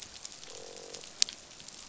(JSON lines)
{"label": "biophony, croak", "recorder": "SoundTrap 500"}